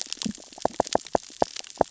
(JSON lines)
{"label": "biophony, knock", "recorder": "SoundTrap 600 or HydroMoth"}